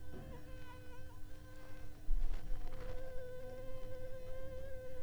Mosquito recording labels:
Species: Anopheles funestus s.s.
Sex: female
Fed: unfed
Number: one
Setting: cup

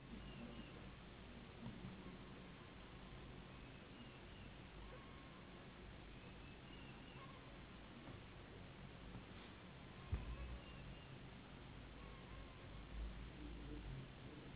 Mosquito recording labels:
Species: Anopheles gambiae s.s.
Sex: female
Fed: unfed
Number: one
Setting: insect culture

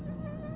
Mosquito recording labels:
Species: Aedes albopictus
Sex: female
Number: one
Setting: insect culture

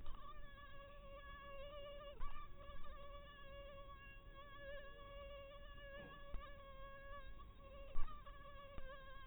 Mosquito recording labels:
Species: mosquito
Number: one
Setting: cup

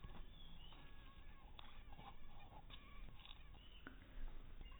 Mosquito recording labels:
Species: mosquito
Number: one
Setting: cup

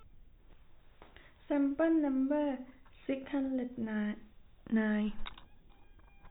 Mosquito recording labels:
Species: no mosquito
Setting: cup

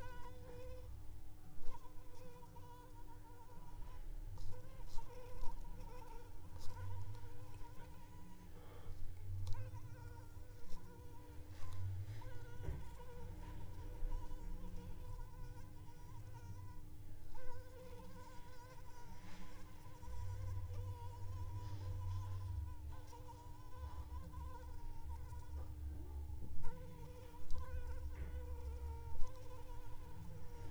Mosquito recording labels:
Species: Anopheles arabiensis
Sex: female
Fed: unfed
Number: one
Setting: cup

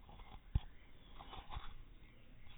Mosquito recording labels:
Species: no mosquito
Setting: cup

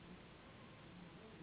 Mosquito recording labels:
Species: Anopheles gambiae s.s.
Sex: female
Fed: unfed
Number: one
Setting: insect culture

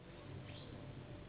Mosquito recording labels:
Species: Anopheles gambiae s.s.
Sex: female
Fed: unfed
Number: one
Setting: insect culture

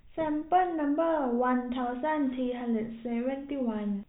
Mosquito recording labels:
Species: no mosquito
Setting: cup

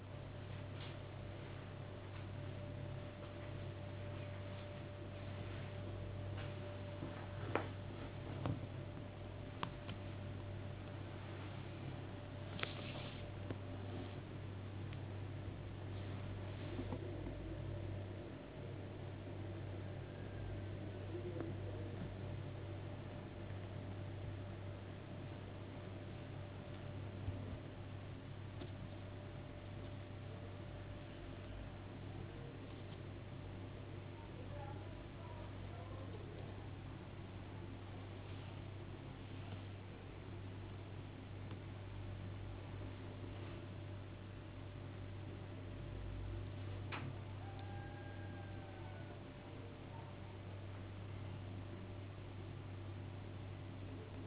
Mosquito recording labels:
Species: no mosquito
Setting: insect culture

